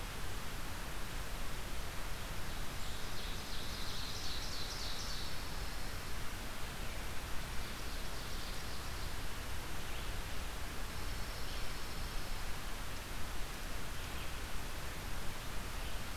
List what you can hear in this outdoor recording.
Ovenbird, Pine Warbler